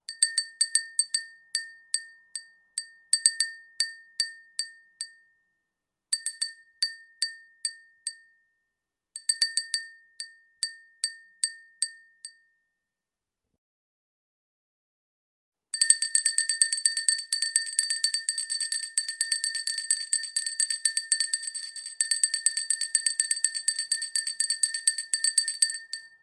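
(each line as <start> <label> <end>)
0.1 A bell rings a soft melody with deliberate notes and pauses between each chime. 5.2
6.1 A bell rings a soft, cute melody with slow, deliberate notes and pauses between each chime. 8.2
9.2 A bell rings a soft, cute melody with slow, deliberate notes and pauses between each chime. 12.4
15.7 A bell rings quickly in a steady, rhythmic pattern. 26.2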